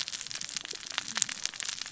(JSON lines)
{"label": "biophony, cascading saw", "recorder": "SoundTrap 600 or HydroMoth"}